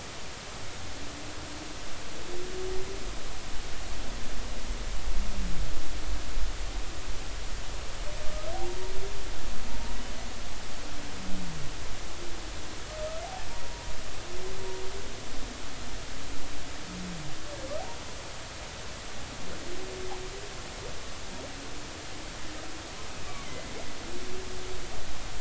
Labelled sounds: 8.5	8.8	humpback whale, 0.80 to 0.96 kHz
23.3	23.7	humpback whale, 2.0 to 2.4 kHz

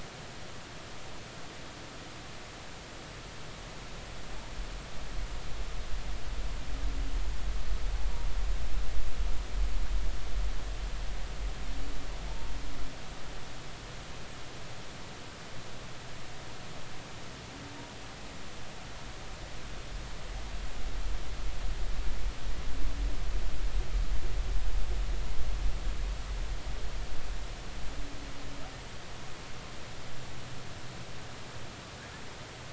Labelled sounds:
12.3	12.5	humpback whale, 0.86 to 0.96 kHz

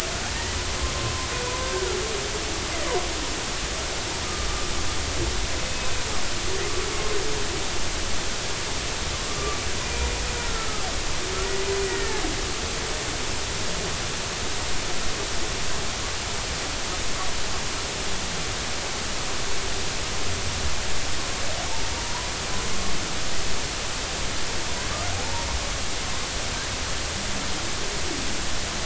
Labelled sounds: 1.6	2.0	humpback whale, 1.3 to 1.6 kHz
4.2	4.5	humpback whale, 1.1 to 1.3 kHz
10.3	10.8	humpback whale, 1.2 to 1.5 kHz
11.8	12.2	humpback whale, 1.7 to 2.0 kHz

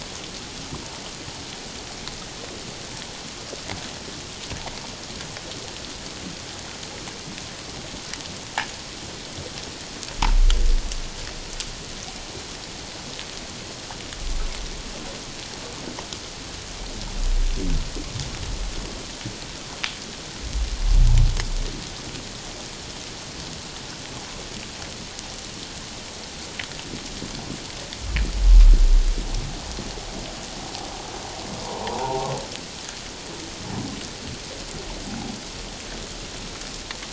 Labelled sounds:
31.6	32.3	humpback whale, 0.78 to 1.1 kHz

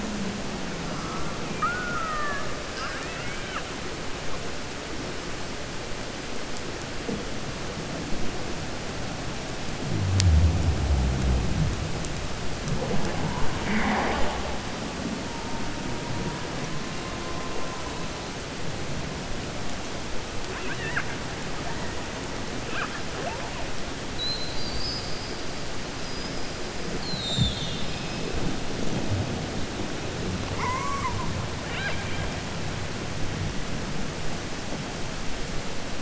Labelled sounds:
1.5	3.7	killer whale, 0.61 to 5.5 kHz
20.4	21.1	killer whale, 0.95 to 3.6 kHz

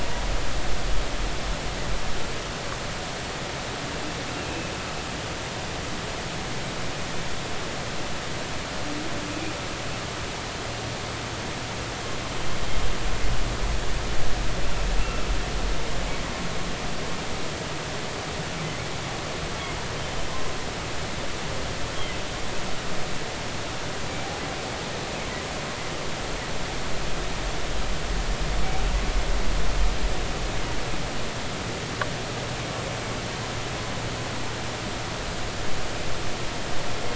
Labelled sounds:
15.0	15.3	humpback whale, 1.2 to 2.8 kHz

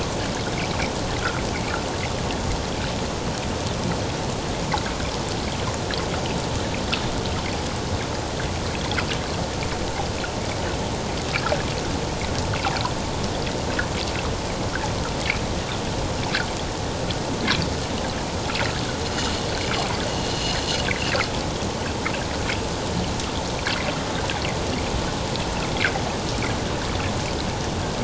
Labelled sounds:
20.3	20.6	water noise, 2.7 to 3.0 kHz
21.0	21.3	water noise, 2.4 to 2.9 kHz

